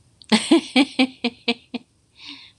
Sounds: Laughter